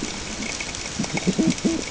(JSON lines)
{"label": "ambient", "recorder": "HydroMoth"}